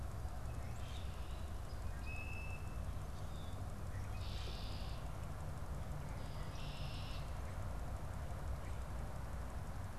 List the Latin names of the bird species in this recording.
Agelaius phoeniceus, Quiscalus quiscula